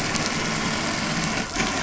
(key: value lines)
label: anthrophony, boat engine
recorder: SoundTrap 500